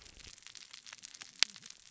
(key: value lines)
label: biophony, cascading saw
recorder: SoundTrap 600 or HydroMoth